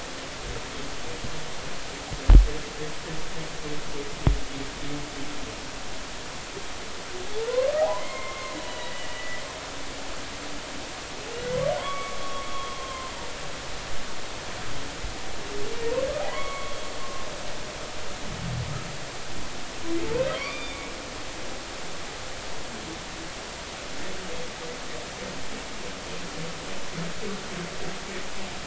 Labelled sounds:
7.5	9.4	humpback whale, 0.80 to 4.0 kHz
11.8	13.1	humpback whale, 0.93 to 3.5 kHz
16.2	16.7	humpback whale, 0.93 to 2.3 kHz
20.4	20.8	humpback whale, 0.96 to 3.6 kHz

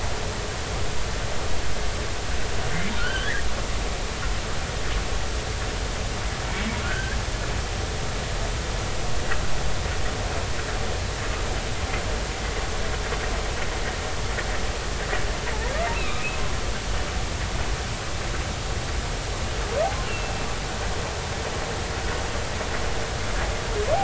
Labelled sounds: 3.0	3.4	humpback whale, 1.3 to 3.2 kHz
6.8	7.2	humpback whale, 1.3 to 1.8 kHz
15.9	16.2	humpback whale, 2.3 to 2.8 kHz
20.0	20.5	humpback whale, 2.6 to 2.9 kHz

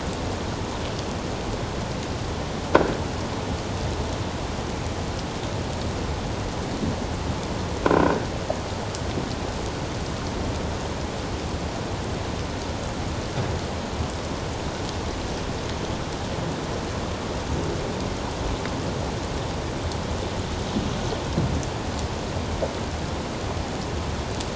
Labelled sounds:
7.8	8.1	croaking sound likely from a nearby submerged object, 1.3 to 1.6 kHz

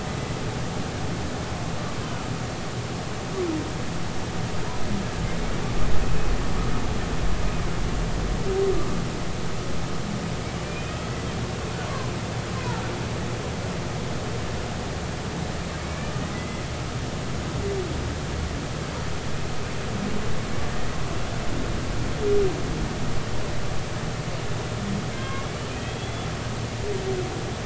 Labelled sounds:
10.6	11.0	humpback whale, 2.3 to 2.6 kHz
15.8	16.6	humpback whale, 2.0 to 2.4 kHz
25.1	26.3	humpback whale, 1.0 to 3.5 kHz

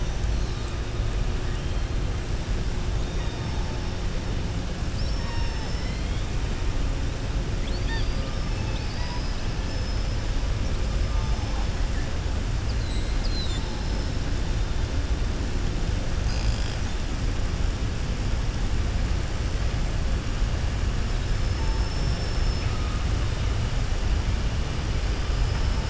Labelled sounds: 4.8	6.2	killer whale, southern resident, 0.92 to 6.3 kHz
8.5	10.1	killer whale, southern resident, 2.5 to 6.1 kHz
12.6	13.8	killer whale, southern resident, 3.5 to 5.5 kHz
21.4	22.7	killer whale, southern resident, 4.9 to 6.2 kHz

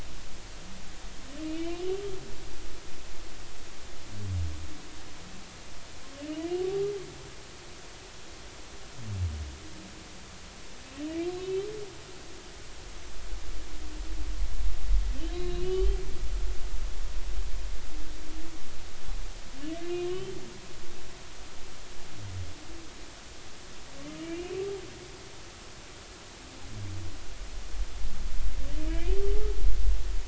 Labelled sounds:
1.4	1.8	humpback whale, 2.2 to 3.1 kHz
11.4	11.7	humpback whale, 2.9 to 3.2 kHz
15.3	16.0	humpback whale, 2.8 to 4.3 kHz
19.8	20.4	humpback whale, 2.8 to 3.9 kHz
28.9	29.2	humpback whale, 2.2 to 2.6 kHz

